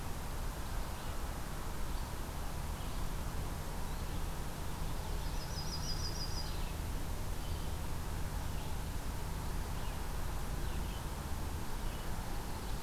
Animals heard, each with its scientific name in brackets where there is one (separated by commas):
Red-eyed Vireo (Vireo olivaceus), Yellow-rumped Warbler (Setophaga coronata)